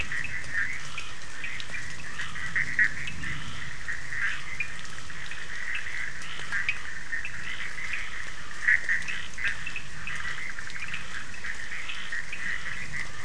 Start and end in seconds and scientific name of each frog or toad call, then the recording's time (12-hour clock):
0.0	3.2	Sphaenorhynchus surdus
0.0	13.2	Boana bischoffi
0.0	13.2	Scinax perereca
4.5	12.5	Sphaenorhynchus surdus
2:00am